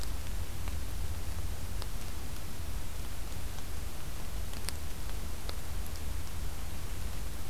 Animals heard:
forest ambience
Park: Acadia National Park